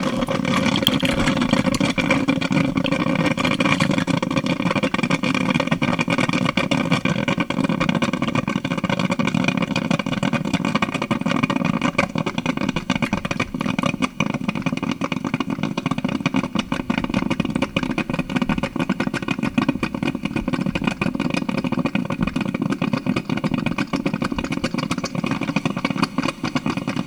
Is the thing rolling down a smooth surface?
no